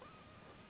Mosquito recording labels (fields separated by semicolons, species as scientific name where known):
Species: Anopheles gambiae s.s.; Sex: female; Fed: unfed; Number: one; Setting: insect culture